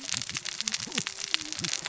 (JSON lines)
{"label": "biophony, cascading saw", "recorder": "SoundTrap 600 or HydroMoth"}